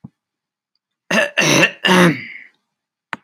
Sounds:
Throat clearing